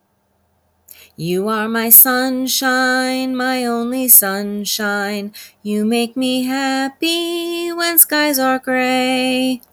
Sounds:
Sigh